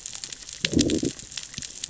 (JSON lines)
{"label": "biophony, growl", "recorder": "SoundTrap 600 or HydroMoth"}